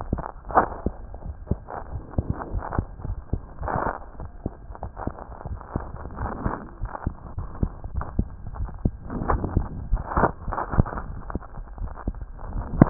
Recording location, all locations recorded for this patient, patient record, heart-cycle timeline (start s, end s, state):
aortic valve (AV)
aortic valve (AV)+pulmonary valve (PV)+tricuspid valve (TV)+mitral valve (MV)
#Age: Child
#Sex: Male
#Height: 108.0 cm
#Weight: 18.0 kg
#Pregnancy status: False
#Murmur: Absent
#Murmur locations: nan
#Most audible location: nan
#Systolic murmur timing: nan
#Systolic murmur shape: nan
#Systolic murmur grading: nan
#Systolic murmur pitch: nan
#Systolic murmur quality: nan
#Diastolic murmur timing: nan
#Diastolic murmur shape: nan
#Diastolic murmur grading: nan
#Diastolic murmur pitch: nan
#Diastolic murmur quality: nan
#Outcome: Normal
#Campaign: 2015 screening campaign
0.00	1.22	unannotated
1.22	1.36	S1
1.36	1.46	systole
1.46	1.60	S2
1.60	1.91	diastole
1.91	2.02	S1
2.02	2.14	systole
2.14	2.26	S2
2.26	2.52	diastole
2.52	2.64	S1
2.64	2.74	systole
2.74	2.86	S2
2.86	3.07	diastole
3.07	3.22	S1
3.22	3.28	systole
3.28	3.40	S2
3.40	3.60	diastole
3.60	3.72	S1
3.72	3.82	systole
3.82	3.92	S2
3.92	4.19	diastole
4.19	4.30	S1
4.30	4.42	systole
4.42	4.52	S2
4.52	4.81	diastole
4.81	4.90	S1
4.90	5.04	systole
5.04	5.16	S2
5.16	5.46	diastole
5.46	5.60	S1
5.60	5.73	systole
5.73	5.86	S2
5.86	6.18	diastole
6.18	6.32	S1
6.32	6.42	systole
6.42	6.54	S2
6.54	6.79	diastole
6.79	6.90	S1
6.90	7.04	systole
7.04	7.16	S2
7.16	7.35	diastole
7.35	7.50	S1
7.50	7.60	systole
7.60	7.70	S2
7.70	7.94	diastole
7.94	8.06	S1
8.06	8.16	systole
8.16	8.30	S2
8.30	8.54	diastole
8.54	8.72	S1
8.72	8.82	systole
8.82	8.96	S2
8.96	9.24	diastole
9.24	9.42	S1
9.42	9.54	systole
9.54	9.68	S2
9.68	9.88	diastole
9.88	10.04	S1
10.04	10.14	systole
10.14	10.28	S2
10.28	10.46	diastole
10.46	10.58	S1
10.58	10.71	systole
10.71	10.85	S2
10.85	11.07	diastole
11.07	11.22	S1
11.22	11.32	systole
11.32	11.46	S2
11.46	11.78	diastole
11.78	11.92	S1
11.92	12.06	systole
12.06	12.18	S2
12.18	12.48	diastole
12.48	12.66	S1
12.66	12.90	unannotated